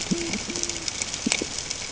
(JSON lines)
{"label": "ambient", "recorder": "HydroMoth"}